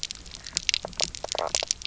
{"label": "biophony, knock croak", "recorder": "SoundTrap 300"}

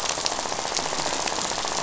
{"label": "biophony, rattle", "recorder": "SoundTrap 500"}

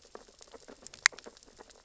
{"label": "biophony, sea urchins (Echinidae)", "recorder": "SoundTrap 600 or HydroMoth"}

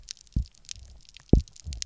{"label": "biophony, double pulse", "recorder": "SoundTrap 300"}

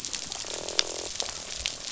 {"label": "biophony, croak", "recorder": "SoundTrap 500"}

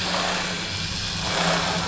{"label": "anthrophony, boat engine", "recorder": "SoundTrap 500"}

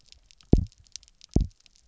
{"label": "biophony, double pulse", "recorder": "SoundTrap 300"}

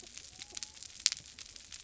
{"label": "biophony", "recorder": "SoundTrap 300"}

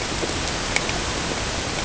{"label": "ambient", "recorder": "HydroMoth"}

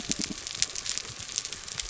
{"label": "biophony", "recorder": "SoundTrap 300"}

